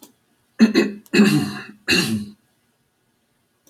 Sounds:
Throat clearing